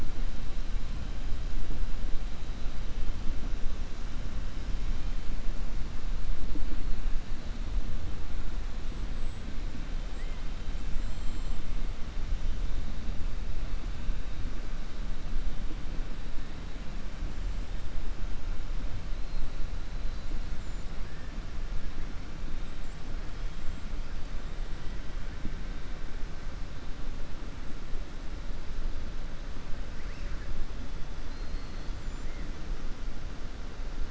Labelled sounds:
11.0	11.6	killer whale, 2.5 to 5.1 kHz
20.5	20.9	killer whale, 6.7 to 7.4 kHz
31.2	31.9	killer whale, 3.4 to 4.9 kHz

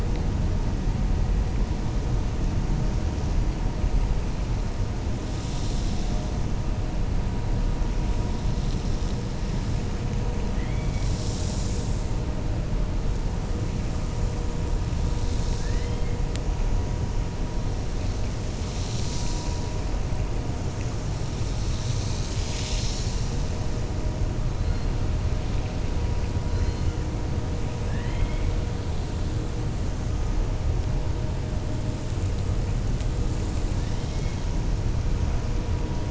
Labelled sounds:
27.8	28.5	killer whale, 1.1 to 3.6 kHz

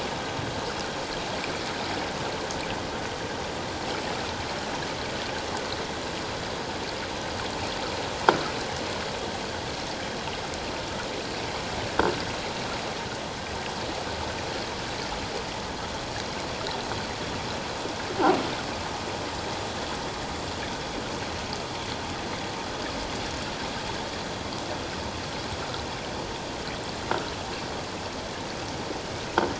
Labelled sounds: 1.4	1.6	water noise, 2.2 to 2.5 kHz

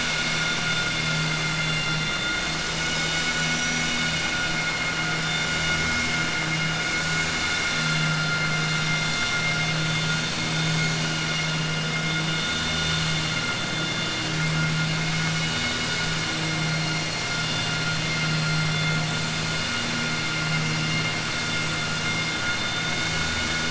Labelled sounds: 1.3	2.3	vessel noise, 1.4 to 4.2 kHz

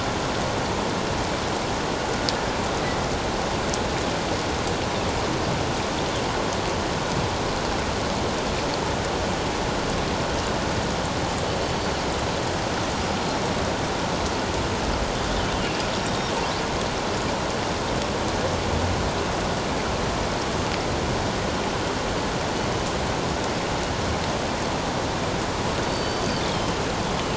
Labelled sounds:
15.5	16.3	killer whale, northern resident, G clan, 2.7 to 3.8 kHz
25.8	26.2	killer whale, northern resident, G clan, 4.5 to 4.7 kHz

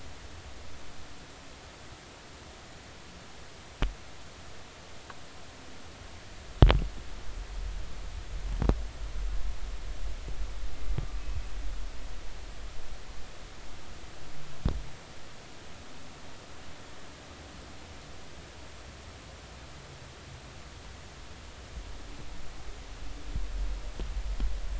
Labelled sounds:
11.1	11.4	humpback whale, 2.5 to 2.7 kHz

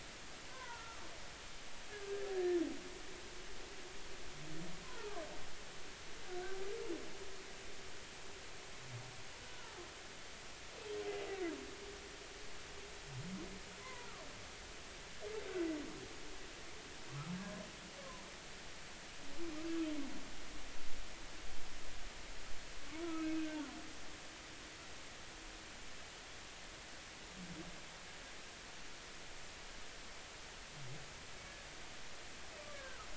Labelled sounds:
0.5	1.1	humpback whale, 0.86 to 1.6 kHz
1.9	2.3	humpback whale, 1.5 to 1.8 kHz
4.8	5.2	humpback whale, 0.80 to 1.1 kHz
13.8	14.1	humpback whale, 0.93 to 1.2 kHz
18.0	18.2	humpback whale, 0.93 to 1.2 kHz
23.0	23.7	humpback whale, 1.2 to 2.6 kHz
32.7	33.1	humpback whale, 1.2 to 1.7 kHz

